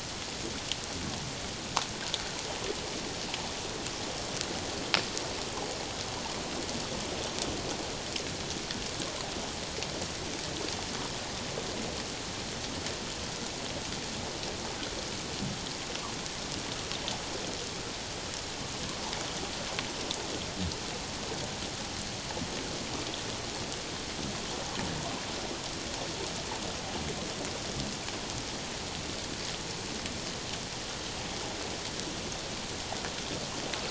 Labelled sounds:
25.0	25.2	water noise, 0.88 to 1.1 kHz

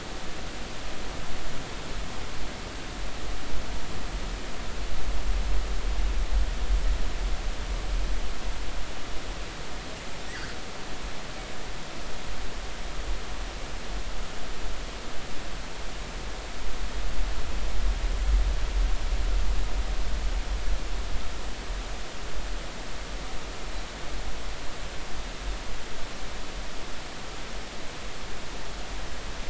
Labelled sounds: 10.3	10.6	killer whale, northern resident, G clan, 1.4 to 2.0 kHz

